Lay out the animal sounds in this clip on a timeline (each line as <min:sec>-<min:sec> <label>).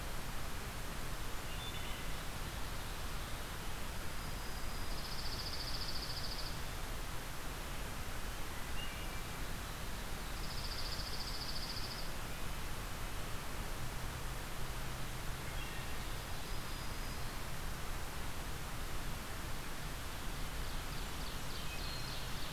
0:01.3-0:02.3 Wood Thrush (Hylocichla mustelina)
0:04.0-0:05.2 Black-throated Green Warbler (Setophaga virens)
0:04.9-0:06.7 Dark-eyed Junco (Junco hyemalis)
0:08.5-0:09.2 Wood Thrush (Hylocichla mustelina)
0:10.2-0:12.1 Dark-eyed Junco (Junco hyemalis)
0:15.3-0:16.0 Wood Thrush (Hylocichla mustelina)
0:16.2-0:17.6 Black-throated Green Warbler (Setophaga virens)
0:20.2-0:22.5 Ovenbird (Seiurus aurocapilla)
0:21.6-0:22.2 Wood Thrush (Hylocichla mustelina)